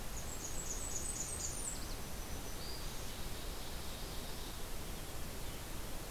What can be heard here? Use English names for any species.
Blackburnian Warbler, Black-throated Green Warbler, Ovenbird